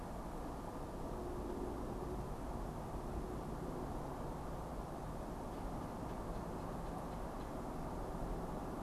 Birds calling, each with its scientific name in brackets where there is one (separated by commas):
Red-bellied Woodpecker (Melanerpes carolinus)